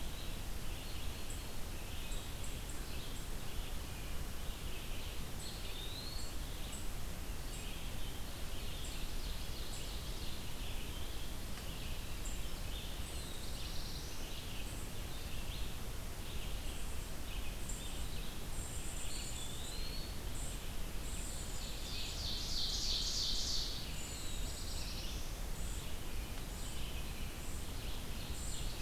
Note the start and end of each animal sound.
[0.00, 19.95] unidentified call
[0.00, 28.81] Red-eyed Vireo (Vireo olivaceus)
[5.18, 6.26] Eastern Wood-Pewee (Contopus virens)
[8.22, 10.38] Ovenbird (Seiurus aurocapilla)
[12.95, 14.39] Black-throated Blue Warbler (Setophaga caerulescens)
[18.96, 20.30] Eastern Wood-Pewee (Contopus virens)
[20.23, 28.81] unidentified call
[21.46, 23.80] Ovenbird (Seiurus aurocapilla)
[24.04, 25.38] Black-throated Blue Warbler (Setophaga caerulescens)
[27.47, 28.81] Ovenbird (Seiurus aurocapilla)

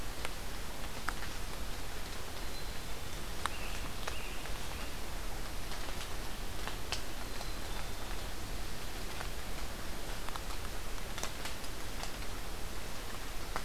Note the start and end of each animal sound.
[2.25, 3.35] Black-capped Chickadee (Poecile atricapillus)
[3.16, 5.09] Scarlet Tanager (Piranga olivacea)
[7.11, 8.03] Black-capped Chickadee (Poecile atricapillus)

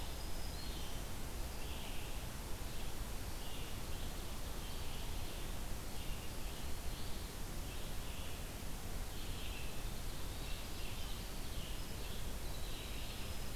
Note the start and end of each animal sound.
[0.00, 1.14] Black-throated Green Warbler (Setophaga virens)
[0.52, 13.56] Red-eyed Vireo (Vireo olivaceus)
[8.92, 13.56] Winter Wren (Troglodytes hiemalis)

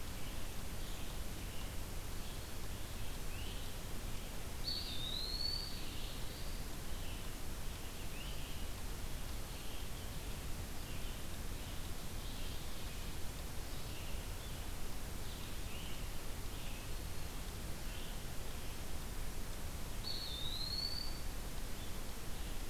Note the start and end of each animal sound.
[0.00, 22.70] Red-eyed Vireo (Vireo olivaceus)
[3.27, 3.49] Great Crested Flycatcher (Myiarchus crinitus)
[4.51, 5.96] Eastern Wood-Pewee (Contopus virens)
[5.47, 6.75] Black-throated Blue Warbler (Setophaga caerulescens)
[8.02, 8.44] Great Crested Flycatcher (Myiarchus crinitus)
[19.83, 21.41] Eastern Wood-Pewee (Contopus virens)

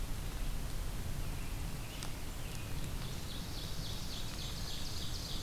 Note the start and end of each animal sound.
[2.95, 4.51] Black-throated Blue Warbler (Setophaga caerulescens)
[3.01, 5.42] Ovenbird (Seiurus aurocapilla)
[3.78, 5.42] Black-and-white Warbler (Mniotilta varia)

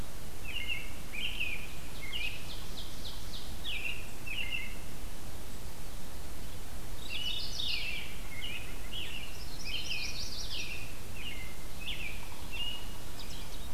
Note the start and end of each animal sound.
[0.29, 2.36] American Robin (Turdus migratorius)
[1.36, 3.94] Ovenbird (Seiurus aurocapilla)
[3.35, 4.98] American Robin (Turdus migratorius)
[6.88, 8.22] Mourning Warbler (Geothlypis philadelphia)
[7.09, 13.74] American Robin (Turdus migratorius)
[9.19, 10.89] Yellow-rumped Warbler (Setophaga coronata)

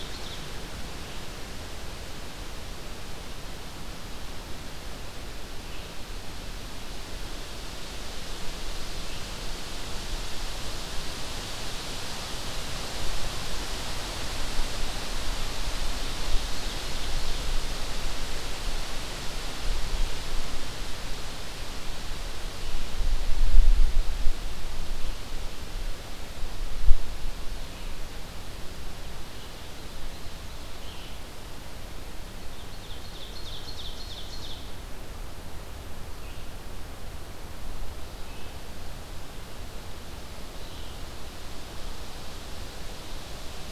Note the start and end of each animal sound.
[0.00, 9.40] Red-eyed Vireo (Vireo olivaceus)
[16.13, 18.03] Ovenbird (Seiurus aurocapilla)
[22.45, 43.72] Red-eyed Vireo (Vireo olivaceus)
[32.44, 34.78] Ovenbird (Seiurus aurocapilla)

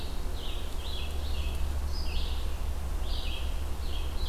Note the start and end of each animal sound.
[0.00, 4.29] Red-eyed Vireo (Vireo olivaceus)

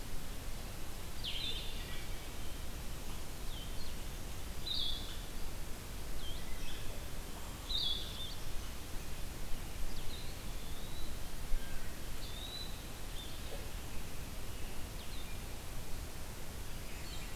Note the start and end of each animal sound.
[0.00, 8.05] Blue-headed Vireo (Vireo solitarius)
[0.00, 17.36] Red-eyed Vireo (Vireo olivaceus)
[1.70, 2.41] Wood Thrush (Hylocichla mustelina)
[9.87, 11.13] Eastern Wood-Pewee (Contopus virens)
[12.12, 12.90] Eastern Wood-Pewee (Contopus virens)

